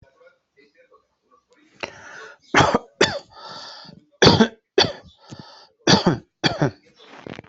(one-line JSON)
{"expert_labels": [{"quality": "ok", "cough_type": "unknown", "dyspnea": false, "wheezing": false, "stridor": false, "choking": false, "congestion": false, "nothing": true, "diagnosis": "healthy cough", "severity": "pseudocough/healthy cough"}], "age": 51, "gender": "female", "respiratory_condition": false, "fever_muscle_pain": false, "status": "COVID-19"}